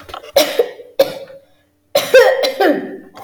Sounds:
Throat clearing